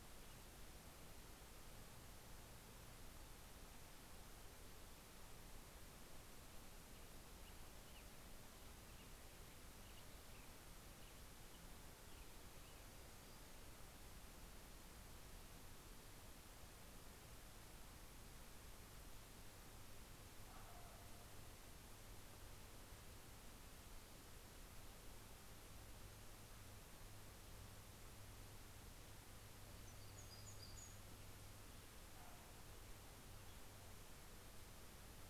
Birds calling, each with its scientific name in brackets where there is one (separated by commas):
American Robin (Turdus migratorius), Hermit Warbler (Setophaga occidentalis)